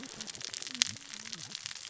{"label": "biophony, cascading saw", "recorder": "SoundTrap 600 or HydroMoth"}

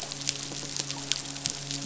{"label": "biophony, midshipman", "recorder": "SoundTrap 500"}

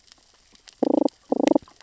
{"label": "biophony, damselfish", "recorder": "SoundTrap 600 or HydroMoth"}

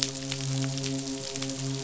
{"label": "biophony, midshipman", "recorder": "SoundTrap 500"}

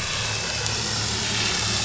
{"label": "anthrophony, boat engine", "recorder": "SoundTrap 500"}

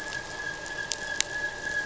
{"label": "anthrophony, boat engine", "recorder": "SoundTrap 500"}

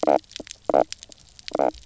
{"label": "biophony, knock croak", "recorder": "SoundTrap 300"}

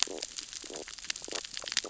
{"label": "biophony, stridulation", "recorder": "SoundTrap 600 or HydroMoth"}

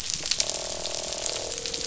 {"label": "biophony, croak", "recorder": "SoundTrap 500"}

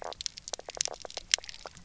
{"label": "biophony, knock croak", "recorder": "SoundTrap 300"}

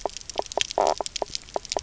{"label": "biophony, knock croak", "recorder": "SoundTrap 300"}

